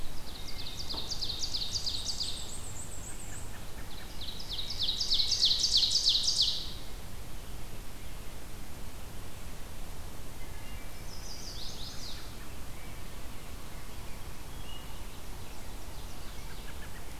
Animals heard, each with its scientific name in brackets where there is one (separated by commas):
American Robin (Turdus migratorius), Ovenbird (Seiurus aurocapilla), Chestnut-sided Warbler (Setophaga pensylvanica), Black-and-white Warbler (Mniotilta varia), Wood Thrush (Hylocichla mustelina)